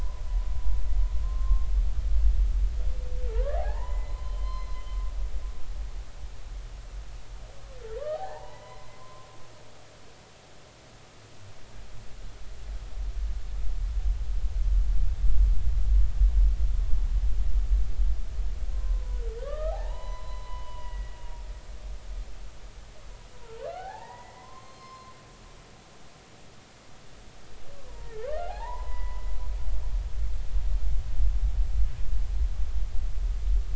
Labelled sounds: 1.2	1.7	humpback whale, 1.0 to 1.1 kHz
3.3	4.8	humpback whale, 0.80 to 4.2 kHz
7.9	9.3	humpback whale, 0.80 to 4.1 kHz
18.7	21.3	humpback whale, 0.80 to 4.1 kHz
23.3	25.1	humpback whale, 0.80 to 4.3 kHz
27.9	28.1	humpback whale, 0.90 to 1.0 kHz
28.5	29.4	humpback whale, 0.80 to 2.1 kHz

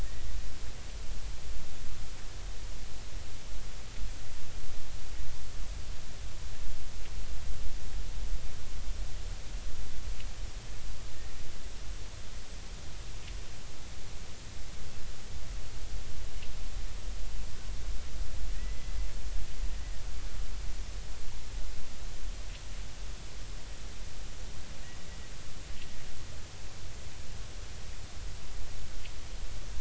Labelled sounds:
18.5	19.0	killer whale, Bigg's (transient), 1.8 to 2.1 kHz

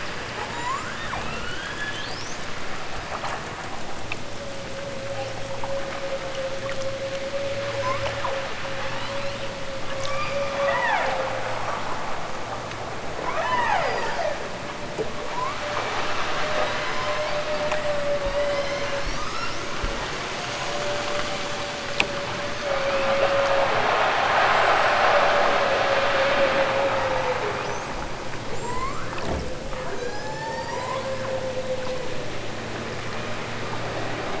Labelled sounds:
0.4	2.5	killer whale, southern Alaska resident, 0.37 to 8.0 kHz
7.7	9.6	killer whale, southern Alaska resident, 0.83 to 8.0 kHz
9.9	11.3	killer whale, southern Alaska resident, 0.18 to 8.0 kHz
13.2	14.4	killer whale, southern Alaska resident, 0.28 to 8.0 kHz
16.5	17.3	killer whale, southern Alaska resident, 0.92 to 8.0 kHz
18.2	19.7	killer whale, southern Alaska resident, 0.69 to 8.0 kHz
22.8	23.3	killer whale, southern Alaska resident, 2.5 to 5.3 kHz
24.4	25.3	killer whale, southern Alaska resident, 3.2 to 8.0 kHz
26.9	27.4	killer whale, southern Alaska resident, 3.3 to 6.5 kHz
28.5	29.3	killer whale, southern Alaska resident, 0.60 to 8.0 kHz
29.7	31.3	killer whale, southern Alaska resident, 0.60 to 8.0 kHz

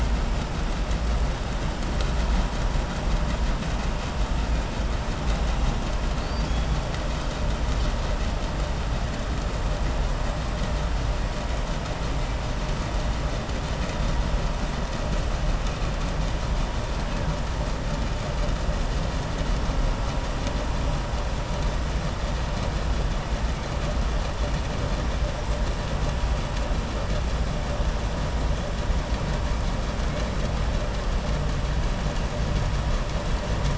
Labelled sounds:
6.1	6.7	killer whale, southern resident, 3.3 to 6.1 kHz

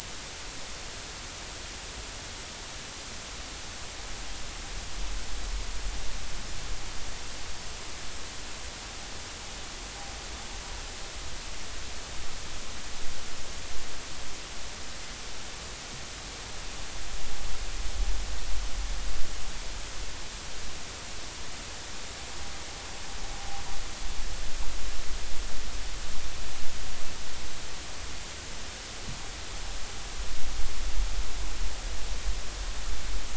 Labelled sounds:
23.3	23.6	noise likely from the mooring, 0.80 to 0.86 kHz

